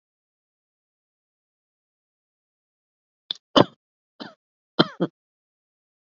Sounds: Cough